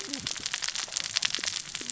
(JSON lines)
{"label": "biophony, cascading saw", "recorder": "SoundTrap 600 or HydroMoth"}